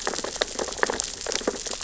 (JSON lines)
{"label": "biophony, sea urchins (Echinidae)", "recorder": "SoundTrap 600 or HydroMoth"}